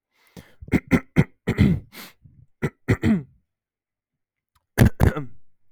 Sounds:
Throat clearing